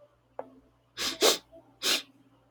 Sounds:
Sniff